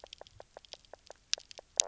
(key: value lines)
label: biophony, knock croak
recorder: SoundTrap 300